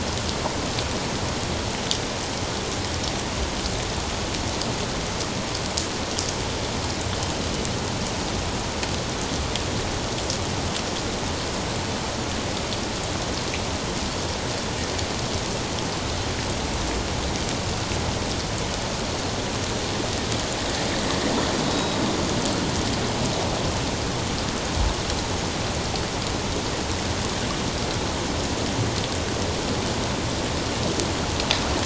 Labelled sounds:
21.7	22.0	Pacific white-sided dolphin, 3.8 to 3.9 kHz

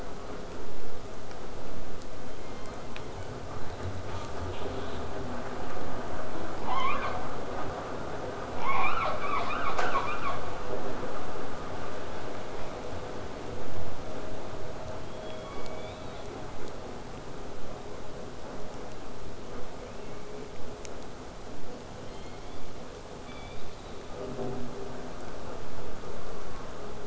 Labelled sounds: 4.1	4.3	killer whale, southern resident, J pod, call S05, 0.32 to 7.2 kHz
4.5	5.0	killer whale, southern resident, 0.71 to 4.4 kHz
15.1	16.4	killer whale, southern resident, J pod, call S01, 0.95 to 5.2 kHz
19.8	20.5	killer whale, southern resident, 1.9 to 3.0 kHz
22.0	22.6	killer whale, southern resident, 1.9 to 5.8 kHz
23.2	24.1	killer whale, southern resident, 2.1 to 4.8 kHz

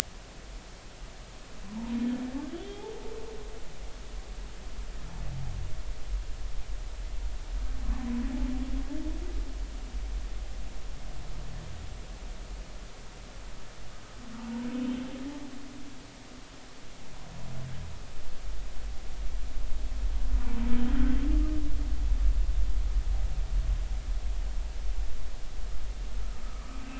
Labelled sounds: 2.5	2.8	humpback whale, 3.0 to 3.7 kHz
14.4	14.7	humpback whale, 0.86 to 1.0 kHz
26.4	26.8	humpback whale, 1.1 to 1.4 kHz

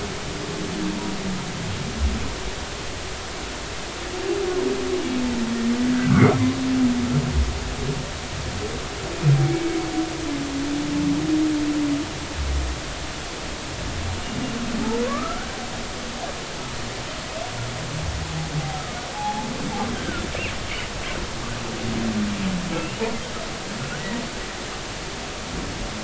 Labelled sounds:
6.0	6.2	humpback whale, 1.1 to 1.7 kHz
9.5	9.8	humpback whale, 2.1 to 2.3 kHz
14.8	15.5	humpback whale, 0.83 to 1.6 kHz
19.1	19.5	humpback whale, 0.80 to 0.93 kHz
19.9	20.2	humpback whale, 1.3 to 1.6 kHz
23.8	24.0	humpback whale, 1.4 to 1.6 kHz

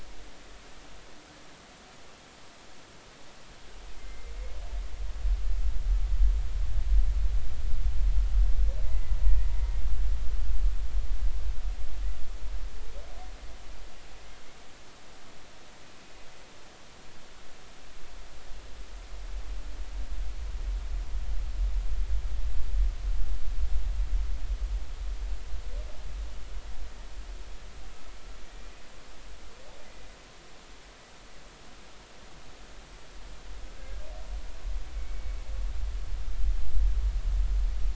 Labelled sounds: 4.0	4.3	humpback whale, 2.0 to 2.2 kHz
8.8	9.9	humpback whale, 1.8 to 2.5 kHz
34.9	35.4	humpback whale, 2.1 to 2.3 kHz

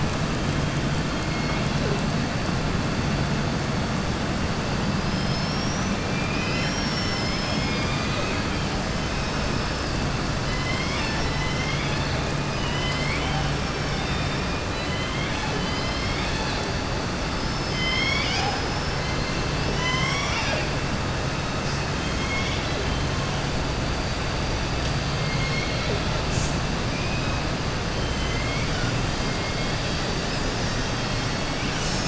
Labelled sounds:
1.1	1.8	killer whale, southern resident, 1.5 to 4.4 kHz
5.0	6.0	killer whale, southern resident, 3.2 to 6.1 kHz
12.5	16.1	killer whale, southern resident, 0.79 to 5.5 kHz
17.3	19.0	killer whale, southern resident, 0.77 to 6.7 kHz
19.6	20.7	killer whale, southern resident, 0.67 to 7.6 kHz
22.0	22.8	killer whale, southern resident, 2.1 to 4.1 kHz
25.1	26.2	killer whale, southern resident, 0.46 to 4.8 kHz
26.9	27.4	killer whale, southern resident, 2.3 to 2.6 kHz
28.0	28.9	killer whale, southern resident, 1.4 to 3.3 kHz

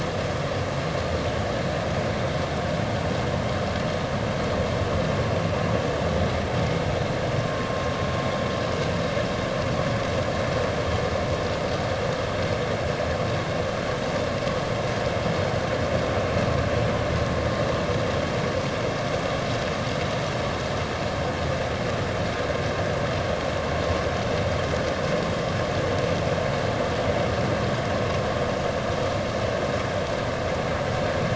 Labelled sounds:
7.4	7.7	vessel noise, 1.0 to 1.1 kHz

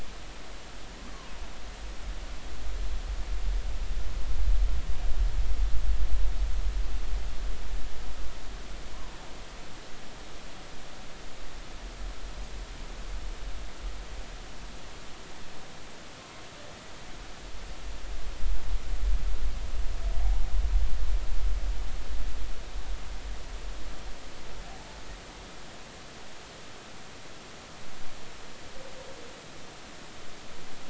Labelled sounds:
1.0	1.3	humpback whale, 0.90 to 1.3 kHz

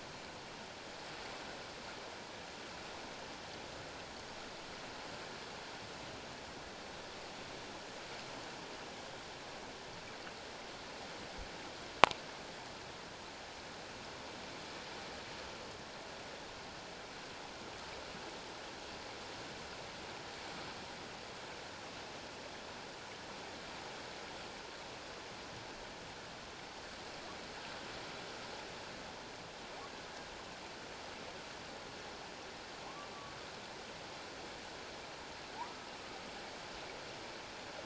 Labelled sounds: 35.6	35.9	humpback whale, 1.1 to 1.3 kHz

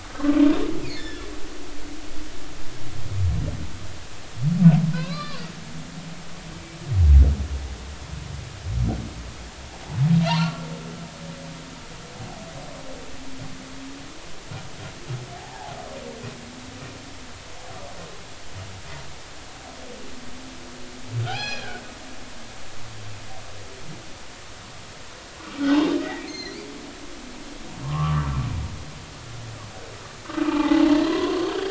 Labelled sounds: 0.1	0.3	humpback whale, 1.5 to 1.6 kHz
0.8	1.3	humpback whale, 1.6 to 3.7 kHz
4.9	5.4	humpback whale, 0.96 to 4.8 kHz
10.2	10.7	humpback whale, 0.86 to 4.5 kHz
15.4	15.8	humpback whale, 0.80 to 0.96 kHz
21.2	21.8	humpback whale, 0.80 to 5.9 kHz
26.0	26.7	humpback whale, 1.8 to 4.3 kHz
27.8	28.3	humpback whale, 0.90 to 1.4 kHz
30.4	31.4	humpback whale, 0.80 to 3.5 kHz

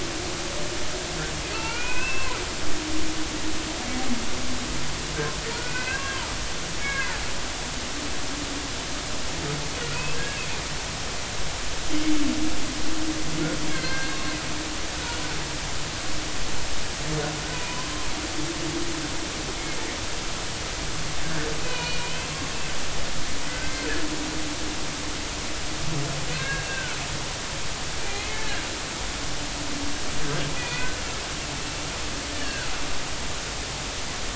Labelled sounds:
1.5	2.4	humpback whale, 0.93 to 2.9 kHz
5.6	6.2	humpback whale, 1.4 to 2.8 kHz
6.8	7.2	humpback whale, 0.80 to 2.3 kHz
9.9	10.4	humpback whale, 1.6 to 2.7 kHz
13.7	14.4	humpback whale, 1.5 to 4.4 kHz
14.9	15.2	humpback whale, 1.3 to 1.5 kHz
17.5	18.1	humpback whale, 0.93 to 1.1 kHz
21.6	22.3	humpback whale, 2.3 to 4.5 kHz
23.5	23.7	humpback whale, 1.5 to 1.6 kHz
26.3	27.0	humpback whale, 1.4 to 2.8 kHz
28.0	28.6	humpback whale, 1.5 to 2.6 kHz
30.6	31.0	humpback whale, 1.4 to 2.6 kHz
32.3	32.7	humpback whale, 1.3 to 3.0 kHz

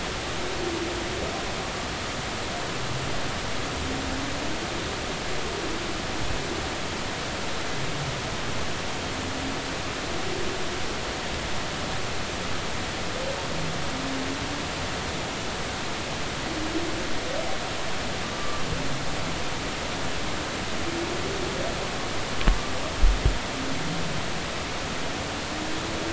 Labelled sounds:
18.3	18.6	humpback whale, 1.1 to 1.2 kHz

